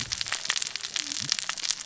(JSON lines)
{"label": "biophony, cascading saw", "recorder": "SoundTrap 600 or HydroMoth"}